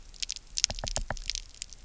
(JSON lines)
{"label": "biophony, knock", "recorder": "SoundTrap 300"}